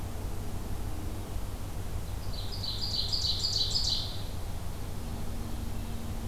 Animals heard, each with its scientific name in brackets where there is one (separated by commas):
Ovenbird (Seiurus aurocapilla)